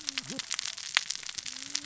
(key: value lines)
label: biophony, cascading saw
recorder: SoundTrap 600 or HydroMoth